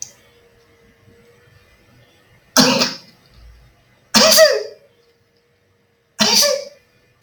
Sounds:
Sneeze